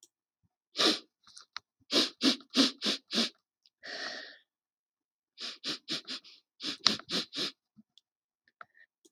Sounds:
Sniff